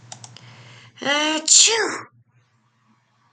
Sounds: Sneeze